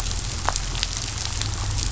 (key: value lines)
label: anthrophony, boat engine
recorder: SoundTrap 500